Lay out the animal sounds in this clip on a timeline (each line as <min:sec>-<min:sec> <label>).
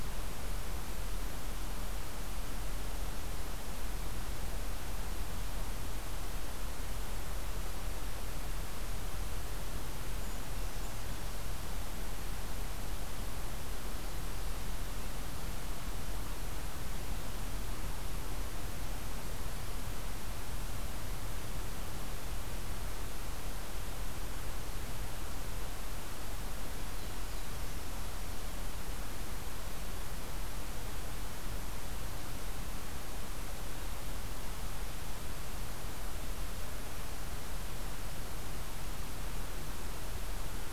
0:10.0-0:11.3 Brown Creeper (Certhia americana)